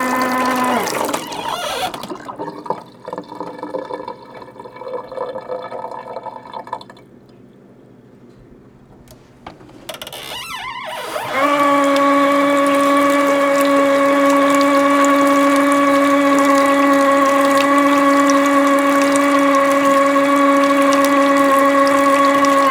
Is water being drained?
yes